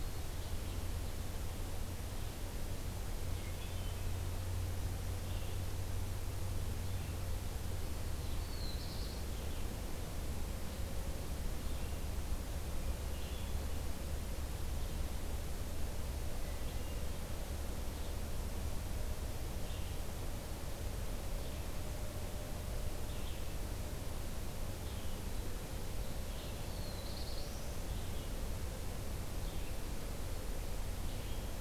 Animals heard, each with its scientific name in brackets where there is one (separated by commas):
Black-throated Blue Warbler (Setophaga caerulescens), Hermit Thrush (Catharus guttatus), Red-eyed Vireo (Vireo olivaceus)